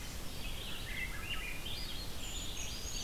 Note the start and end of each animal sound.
[0.00, 3.03] Red-eyed Vireo (Vireo olivaceus)
[0.71, 2.08] Swainson's Thrush (Catharus ustulatus)
[2.01, 3.03] Brown Creeper (Certhia americana)

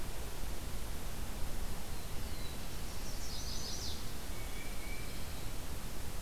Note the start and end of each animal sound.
[1.65, 3.41] Black-throated Blue Warbler (Setophaga caerulescens)
[2.69, 4.14] Chestnut-sided Warbler (Setophaga pensylvanica)
[4.20, 5.53] Tufted Titmouse (Baeolophus bicolor)

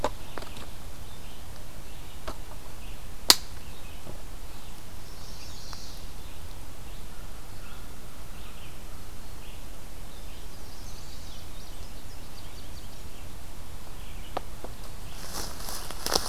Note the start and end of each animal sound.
[0.18, 16.28] Red-eyed Vireo (Vireo olivaceus)
[4.96, 6.11] Chestnut-sided Warbler (Setophaga pensylvanica)
[10.11, 11.54] Chestnut-sided Warbler (Setophaga pensylvanica)
[11.43, 13.34] Indigo Bunting (Passerina cyanea)

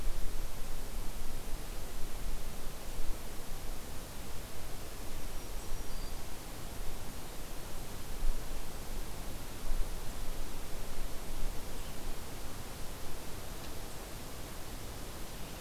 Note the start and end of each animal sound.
[4.97, 6.31] Black-throated Green Warbler (Setophaga virens)

